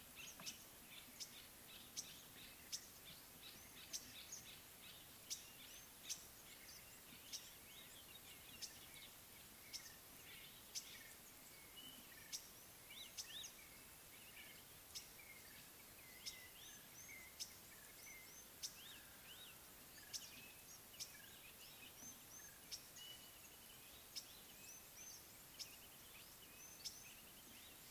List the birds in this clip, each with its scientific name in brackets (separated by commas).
Red-backed Scrub-Robin (Cercotrichas leucophrys), Common Bulbul (Pycnonotus barbatus), Green-winged Pytilia (Pytilia melba)